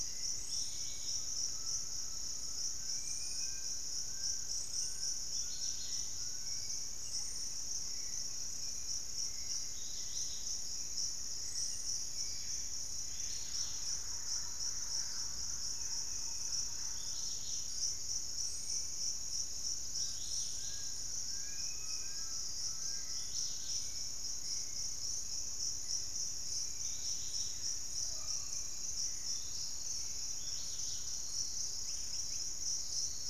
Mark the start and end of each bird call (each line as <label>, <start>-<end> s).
Dusky-capped Greenlet (Pachysylvia hypoxantha), 0.0-33.3 s
Undulated Tinamou (Crypturellus undulatus), 0.9-2.6 s
Dusky-capped Flycatcher (Myiarchus tuberculifer), 2.7-3.9 s
Fasciated Antshrike (Cymbilaimus lineatus), 2.7-6.6 s
unidentified bird, 4.7-12.0 s
Hauxwell's Thrush (Turdus hauxwelli), 5.6-13.3 s
Thrush-like Wren (Campylorhynchus turdinus), 12.9-17.7 s
Black-capped Becard (Pachyramphus marginatus), 14.8-17.6 s
Hauxwell's Thrush (Turdus hauxwelli), 17.5-31.8 s
Fasciated Antshrike (Cymbilaimus lineatus), 19.8-23.7 s
Dusky-capped Flycatcher (Myiarchus tuberculifer), 21.0-22.5 s
Undulated Tinamou (Crypturellus undulatus), 21.7-23.1 s